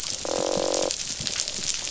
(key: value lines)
label: biophony, croak
recorder: SoundTrap 500